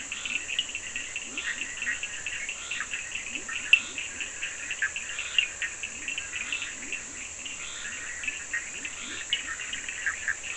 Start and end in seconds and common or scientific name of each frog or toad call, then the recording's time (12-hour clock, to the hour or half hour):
0.0	10.5	Scinax perereca
0.2	10.5	Leptodactylus latrans
0.5	0.7	Cochran's lime tree frog
1.4	10.5	Bischoff's tree frog
3.7	3.9	Cochran's lime tree frog
5.3	5.5	Cochran's lime tree frog
9.3	9.5	Cochran's lime tree frog
9.8	10.5	Cochran's lime tree frog
10:30pm